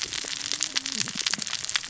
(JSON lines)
{"label": "biophony, cascading saw", "recorder": "SoundTrap 600 or HydroMoth"}